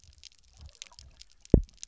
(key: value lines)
label: biophony, double pulse
recorder: SoundTrap 300